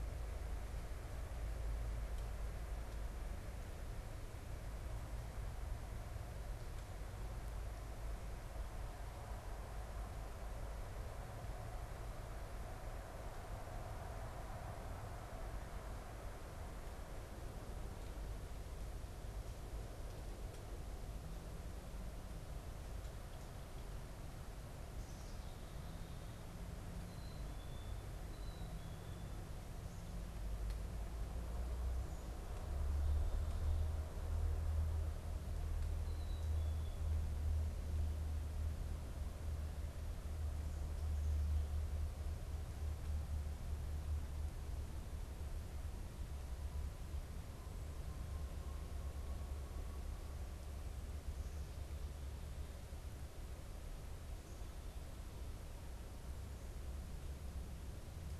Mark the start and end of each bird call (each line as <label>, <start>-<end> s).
Black-capped Chickadee (Poecile atricapillus), 26.9-29.2 s
Black-capped Chickadee (Poecile atricapillus), 35.8-37.2 s